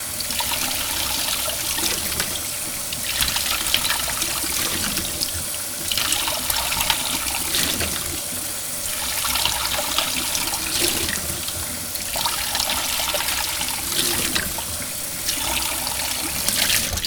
Is something interrupting the flow of water?
yes